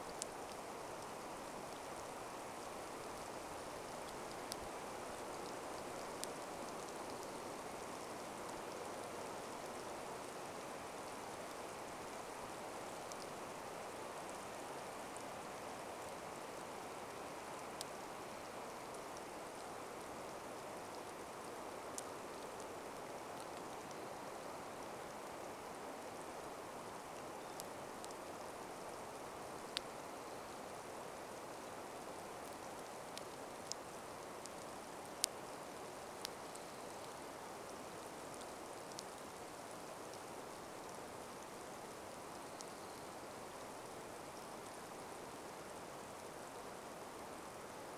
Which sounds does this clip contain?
rain, Black-capped Chickadee song, Orange-crowned Warbler song